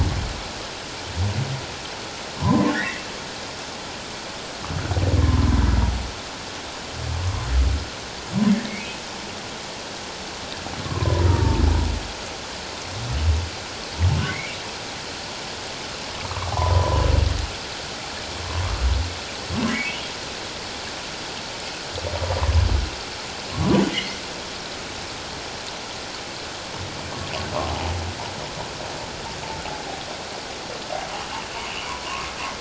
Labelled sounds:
2.4	3.0	humpback whale, 0.91 to 2.3 kHz
5.2	5.6	humpback whale, 0.91 to 1.1 kHz
10.8	11.6	humpback whale, 0.88 to 1.2 kHz
14.3	14.6	humpback whale, 2.0 to 2.4 kHz
16.2	17.0	humpback whale, 0.78 to 1.3 kHz
19.7	20.0	humpback whale, 1.8 to 2.4 kHz
23.9	24.2	humpback whale, 1.8 to 2.2 kHz

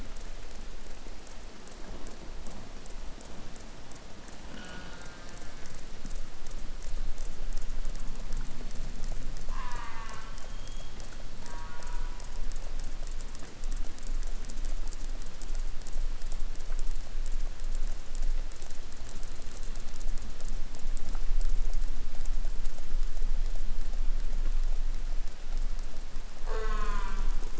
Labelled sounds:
4.5	5.9	killer whale, southern resident, J pod, call S04, 0.32 to 4.8 kHz
9.5	10.6	killer whale, southern resident, J pod, call S04, 0 to 4.6 kHz
11.4	12.5	killer whale, southern resident, J pod, call S04, 0 to 3.1 kHz
26.4	27.5	killer whale, southern resident, J pod, call S04, 0.11 to 8.0 kHz

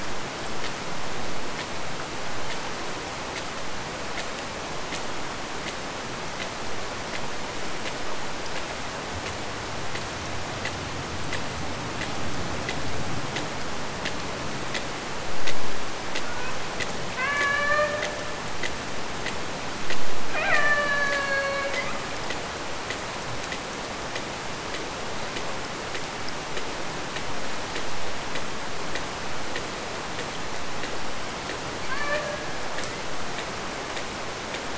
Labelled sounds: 16.1	16.7	killer whale, Bigg's (transient), AT1 transient, 0.86 to 2.7 kHz
17.2	18.2	killer whale, Bigg's (transient), AT1 transient, 0.40 to 4.3 kHz
20.4	22.1	killer whale, Bigg's (transient), AT1 transient, 0.42 to 4.7 kHz
31.8	32.5	killer whale, Bigg's (transient), AT1 transient, 0.42 to 2.5 kHz

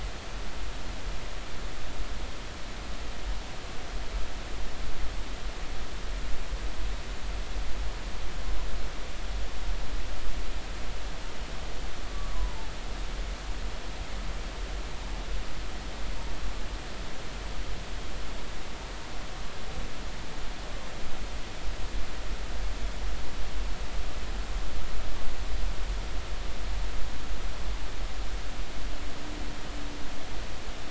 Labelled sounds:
12.1	12.6	humpback whale, 0.90 to 1.2 kHz

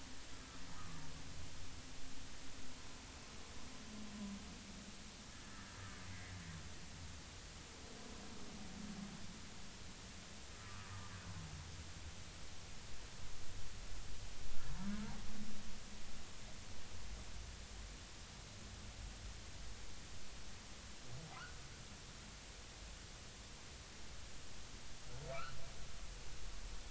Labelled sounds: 6.1	6.3	humpback whale, 1.9 to 2.2 kHz
10.6	10.9	humpback whale, 1.1 to 1.3 kHz
21.3	21.6	humpback whale, 1.2 to 1.6 kHz
25.3	25.6	humpback whale, 1.1 to 3.0 kHz

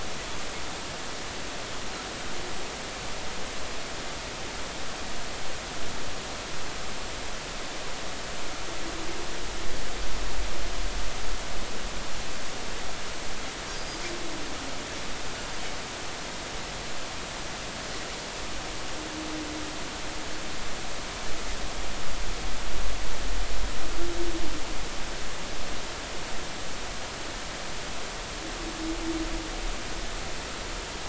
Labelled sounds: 13.7	14.0	Pacific white-sided dolphin, 4.7 to 5.1 kHz

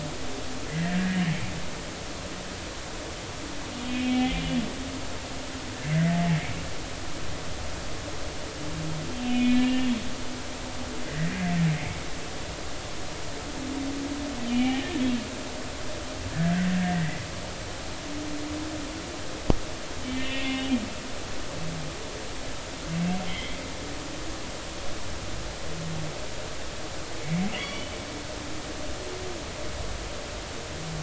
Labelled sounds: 0.7	1.2	humpback whale, 1.6 to 2.1 kHz
3.7	4.6	humpback whale, 2.2 to 3.2 kHz
5.9	6.4	humpback whale, 0.80 to 2.2 kHz
9.2	9.9	humpback whale, 1.7 to 2.9 kHz
11.0	12.0	humpback whale, 1.8 to 2.3 kHz
14.5	14.9	humpback whale, 1.7 to 3.3 kHz
16.3	17.3	humpback whale, 1.4 to 2.1 kHz
20.0	20.7	humpback whale, 1.8 to 3.2 kHz
23.3	23.6	humpback whale, 2.0 to 3.4 kHz
27.2	27.9	humpback whale, 1.9 to 4.6 kHz

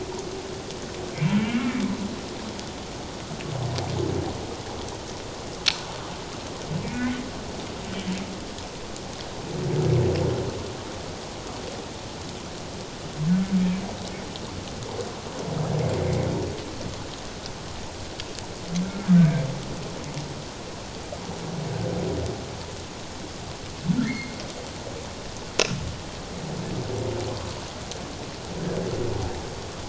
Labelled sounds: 1.4	1.7	humpback whale, 2.0 to 2.9 kHz
6.8	7.2	humpback whale, 1.9 to 2.5 kHz
18.8	19.1	humpback whale, 1.3 to 1.6 kHz
24.1	24.4	humpback whale, 2.0 to 4.4 kHz

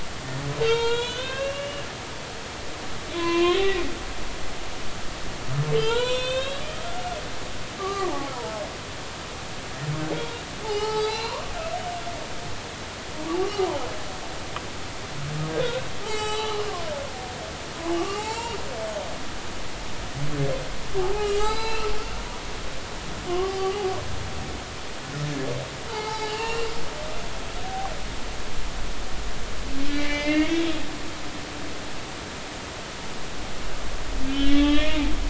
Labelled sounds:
0.6	1.9	humpback whale, 0.86 to 7.5 kHz
3.1	3.8	humpback whale, 0.96 to 4.2 kHz
5.7	6.7	humpback whale, 0.86 to 7.8 kHz
7.8	8.6	humpback whale, 0.80 to 1.2 kHz
10.6	11.4	humpback whale, 0.80 to 4.9 kHz
16.0	16.9	humpback whale, 0.80 to 7.7 kHz
18.0	18.6	humpback whale, 0.80 to 5.7 kHz
21.1	21.9	humpback whale, 0.80 to 6.0 kHz
23.3	23.7	humpback whale, 0.80 to 1.2 kHz
25.9	26.7	humpback whale, 0.80 to 4.9 kHz
29.9	30.7	humpback whale, 1.7 to 3.4 kHz
34.3	35.1	humpback whale, 1.1 to 3.6 kHz

